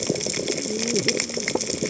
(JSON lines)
{"label": "biophony, cascading saw", "recorder": "HydroMoth"}